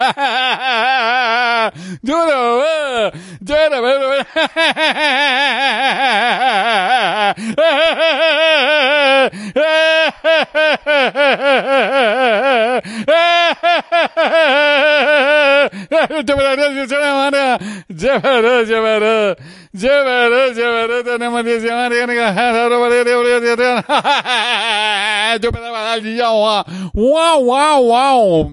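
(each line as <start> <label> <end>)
0.0 A man laughs loudly. 1.8
1.7 A man is speaking unclearly and bizarrely. 4.3
4.3 A man laughs loudly. 15.8
15.7 A man is speaking unclearly and bizarrely. 28.5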